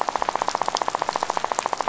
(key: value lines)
label: biophony, rattle
recorder: SoundTrap 500